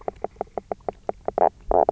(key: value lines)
label: biophony, knock croak
recorder: SoundTrap 300